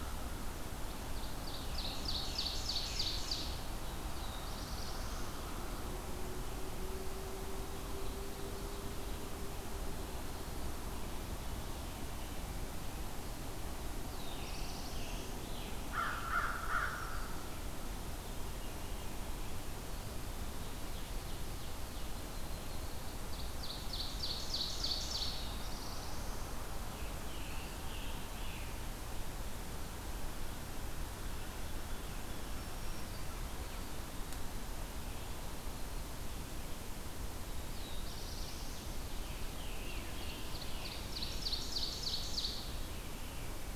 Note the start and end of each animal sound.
[1.06, 3.81] Ovenbird (Seiurus aurocapilla)
[1.21, 3.14] Scarlet Tanager (Piranga olivacea)
[3.91, 5.45] Black-throated Blue Warbler (Setophaga caerulescens)
[7.48, 9.39] Ovenbird (Seiurus aurocapilla)
[13.91, 15.59] Black-throated Blue Warbler (Setophaga caerulescens)
[14.10, 16.51] Scarlet Tanager (Piranga olivacea)
[15.72, 17.84] American Crow (Corvus brachyrhynchos)
[16.12, 17.50] Black-throated Green Warbler (Setophaga virens)
[20.52, 22.13] Ovenbird (Seiurus aurocapilla)
[22.01, 23.24] Yellow-rumped Warbler (Setophaga coronata)
[22.97, 25.76] Ovenbird (Seiurus aurocapilla)
[24.96, 26.39] Black-throated Blue Warbler (Setophaga caerulescens)
[26.78, 28.77] Scarlet Tanager (Piranga olivacea)
[32.27, 33.55] Black-throated Green Warbler (Setophaga virens)
[33.57, 34.62] Eastern Wood-Pewee (Contopus virens)
[37.45, 39.07] Black-throated Blue Warbler (Setophaga caerulescens)
[39.08, 40.99] Scarlet Tanager (Piranga olivacea)
[39.31, 42.93] Ovenbird (Seiurus aurocapilla)
[42.82, 43.75] Veery (Catharus fuscescens)

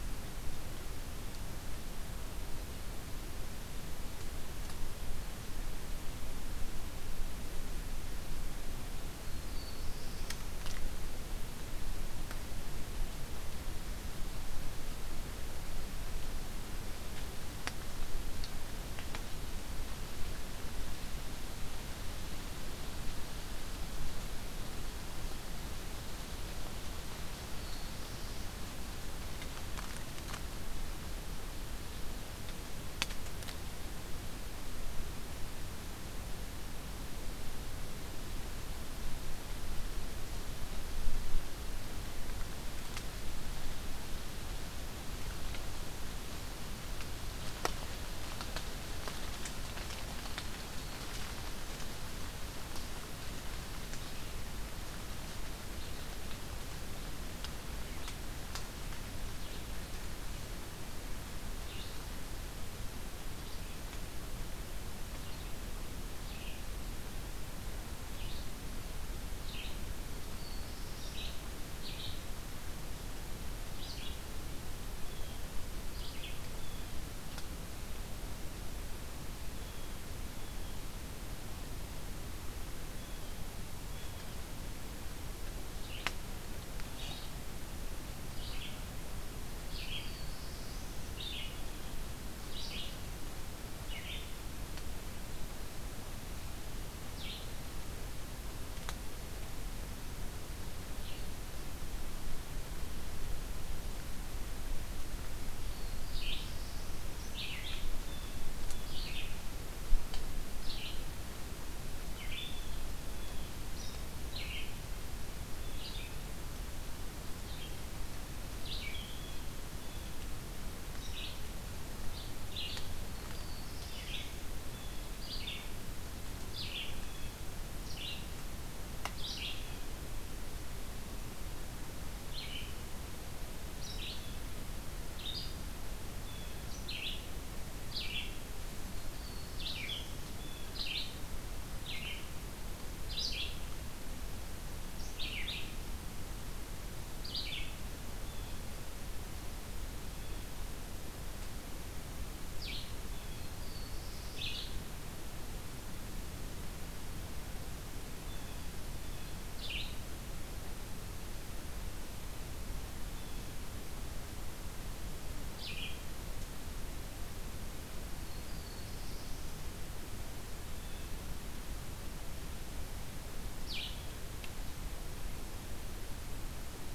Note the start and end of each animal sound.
[9.31, 10.25] Black-throated Blue Warbler (Setophaga caerulescens)
[27.42, 28.72] Black-throated Blue Warbler (Setophaga caerulescens)
[61.47, 76.52] Red-eyed Vireo (Vireo olivaceus)
[70.19, 71.31] Black-throated Blue Warbler (Setophaga caerulescens)
[74.78, 77.05] Blue Jay (Cyanocitta cristata)
[79.46, 80.67] Blue Jay (Cyanocitta cristata)
[82.86, 84.38] Blue Jay (Cyanocitta cristata)
[85.70, 101.27] Red-eyed Vireo (Vireo olivaceus)
[89.91, 90.95] Black-throated Blue Warbler (Setophaga caerulescens)
[105.56, 107.06] Black-throated Blue Warbler (Setophaga caerulescens)
[106.03, 159.88] Red-eyed Vireo (Vireo olivaceus)
[107.97, 109.05] Blue Jay (Cyanocitta cristata)
[112.36, 113.60] Blue Jay (Cyanocitta cristata)
[118.85, 119.48] Blue Jay (Cyanocitta cristata)
[122.85, 124.15] Black-throated Blue Warbler (Setophaga caerulescens)
[124.63, 125.10] Blue Jay (Cyanocitta cristata)
[126.91, 127.45] Blue Jay (Cyanocitta cristata)
[135.95, 136.65] Blue Jay (Cyanocitta cristata)
[139.02, 140.18] Black-throated Blue Warbler (Setophaga caerulescens)
[140.30, 140.65] Blue Jay (Cyanocitta cristata)
[148.15, 148.53] Blue Jay (Cyanocitta cristata)
[153.17, 154.49] Black-throated Blue Warbler (Setophaga caerulescens)
[158.27, 159.47] Blue Jay (Cyanocitta cristata)
[162.94, 163.61] Blue Jay (Cyanocitta cristata)
[165.37, 166.11] Red-eyed Vireo (Vireo olivaceus)
[168.13, 169.48] Black-throated Blue Warbler (Setophaga caerulescens)
[170.47, 171.25] Blue Jay (Cyanocitta cristata)
[173.48, 174.26] Red-eyed Vireo (Vireo olivaceus)

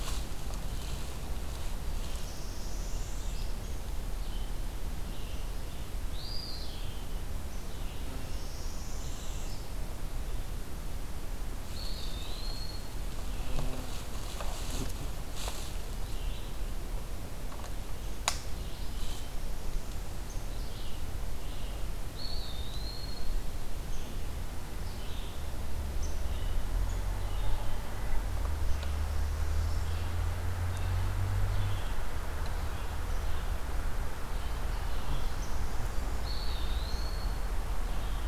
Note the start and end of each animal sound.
[0.00, 38.27] Red-eyed Vireo (Vireo olivaceus)
[2.03, 3.56] Northern Parula (Setophaga americana)
[6.04, 7.25] Eastern Wood-Pewee (Contopus virens)
[8.12, 9.83] Northern Parula (Setophaga americana)
[11.61, 13.01] Eastern Wood-Pewee (Contopus virens)
[22.05, 23.36] Eastern Wood-Pewee (Contopus virens)
[28.60, 30.01] Northern Parula (Setophaga americana)
[35.16, 36.37] Northern Parula (Setophaga americana)
[36.12, 37.60] Eastern Wood-Pewee (Contopus virens)

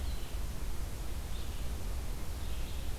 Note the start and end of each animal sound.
[0.00, 2.98] Red-eyed Vireo (Vireo olivaceus)
[2.19, 2.98] Ovenbird (Seiurus aurocapilla)

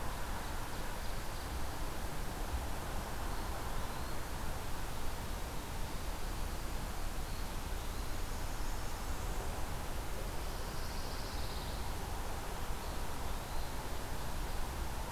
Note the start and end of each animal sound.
[0.00, 1.59] Ovenbird (Seiurus aurocapilla)
[3.24, 4.33] Eastern Wood-Pewee (Contopus virens)
[8.14, 9.48] Blackburnian Warbler (Setophaga fusca)
[10.51, 11.98] Pine Warbler (Setophaga pinus)
[12.63, 13.82] Eastern Wood-Pewee (Contopus virens)

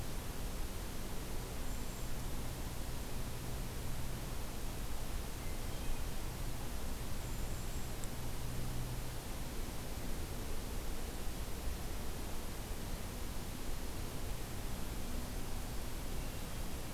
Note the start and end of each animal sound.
[1.35, 2.08] Brown Creeper (Certhia americana)
[5.29, 6.26] Hermit Thrush (Catharus guttatus)
[6.95, 7.95] Brown Creeper (Certhia americana)

